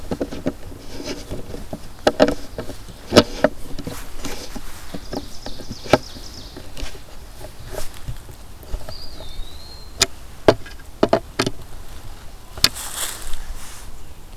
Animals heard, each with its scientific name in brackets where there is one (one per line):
Ovenbird (Seiurus aurocapilla)
Eastern Wood-Pewee (Contopus virens)